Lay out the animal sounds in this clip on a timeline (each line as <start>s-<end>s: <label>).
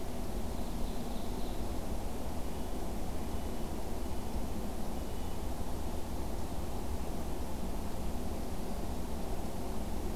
0.0s-1.7s: Ovenbird (Seiurus aurocapilla)
2.3s-5.5s: Red-breasted Nuthatch (Sitta canadensis)